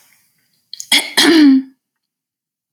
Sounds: Throat clearing